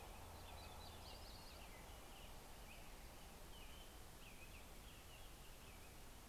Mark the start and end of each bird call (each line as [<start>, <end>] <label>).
[0.00, 6.03] American Robin (Turdus migratorius)
[0.03, 1.83] Yellow-rumped Warbler (Setophaga coronata)